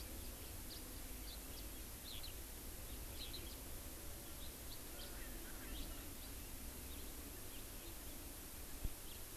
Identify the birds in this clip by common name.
House Finch, Eurasian Skylark, Erckel's Francolin